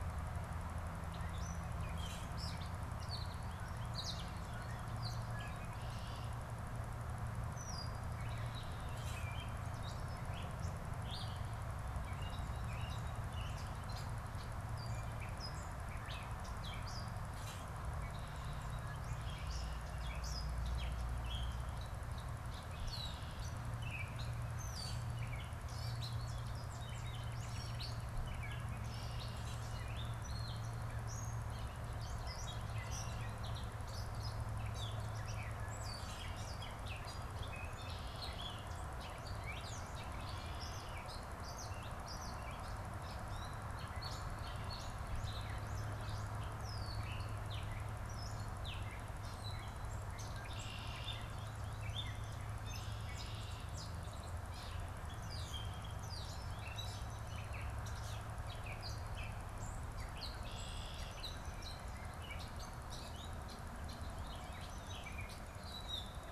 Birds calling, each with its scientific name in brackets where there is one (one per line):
Gray Catbird (Dumetella carolinensis)
Red-winged Blackbird (Agelaius phoeniceus)
American Goldfinch (Spinus tristis)
Common Grackle (Quiscalus quiscula)